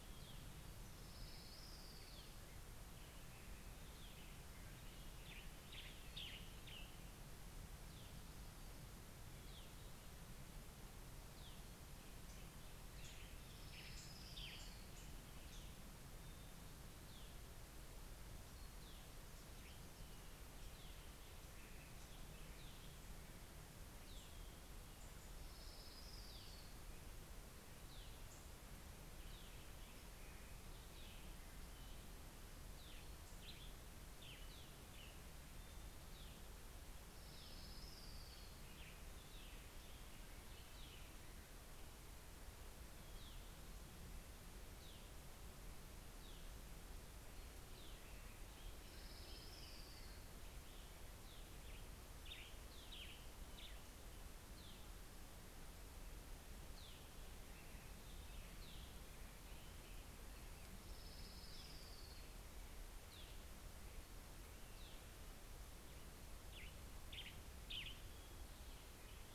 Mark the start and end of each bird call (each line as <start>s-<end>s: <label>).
0.0s-3.1s: Orange-crowned Warbler (Leiothlypis celata)
4.3s-7.7s: Western Tanager (Piranga ludoviciana)
10.9s-18.2s: Western Tanager (Piranga ludoviciana)
11.9s-16.6s: Orange-crowned Warbler (Leiothlypis celata)
24.5s-27.9s: Orange-crowned Warbler (Leiothlypis celata)
32.1s-35.8s: Western Tanager (Piranga ludoviciana)
36.2s-40.2s: Orange-crowned Warbler (Leiothlypis celata)
47.9s-51.3s: Orange-crowned Warbler (Leiothlypis celata)
51.3s-54.9s: Western Tanager (Piranga ludoviciana)
59.8s-63.0s: Orange-crowned Warbler (Leiothlypis celata)
65.1s-69.3s: Western Tanager (Piranga ludoviciana)